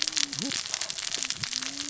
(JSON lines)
{"label": "biophony, cascading saw", "recorder": "SoundTrap 600 or HydroMoth"}